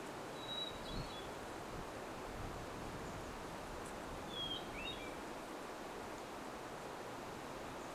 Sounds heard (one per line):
airplane
Hermit Thrush song
Chestnut-backed Chickadee call